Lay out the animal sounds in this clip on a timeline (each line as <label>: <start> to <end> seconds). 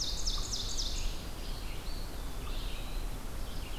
Ovenbird (Seiurus aurocapilla): 0.0 to 1.4 seconds
Red-eyed Vireo (Vireo olivaceus): 0.0 to 3.8 seconds
unknown mammal: 0.0 to 3.8 seconds
Eastern Wood-Pewee (Contopus virens): 1.5 to 3.3 seconds